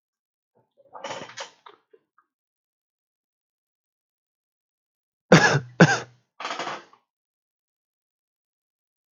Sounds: Cough